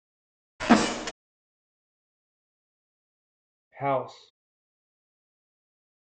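At the start, a door opens. Then, about 4 seconds in, someone says "house."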